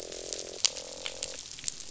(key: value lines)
label: biophony, croak
recorder: SoundTrap 500